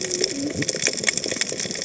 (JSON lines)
{"label": "biophony, cascading saw", "recorder": "HydroMoth"}